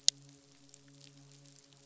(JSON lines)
{"label": "biophony, midshipman", "recorder": "SoundTrap 500"}